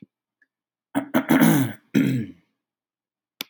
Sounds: Throat clearing